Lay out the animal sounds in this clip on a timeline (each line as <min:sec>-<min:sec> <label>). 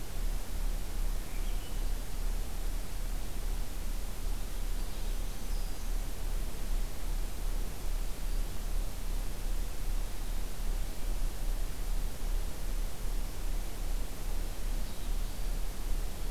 0:01.2-0:02.0 Swainson's Thrush (Catharus ustulatus)
0:05.1-0:05.9 Black-throated Green Warbler (Setophaga virens)